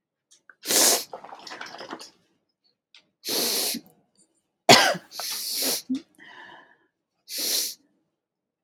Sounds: Sniff